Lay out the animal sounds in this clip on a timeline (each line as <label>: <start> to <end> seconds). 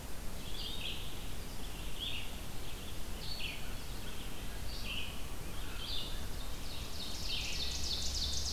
Red-eyed Vireo (Vireo olivaceus): 0.0 to 8.5 seconds
Ovenbird (Seiurus aurocapilla): 6.1 to 8.5 seconds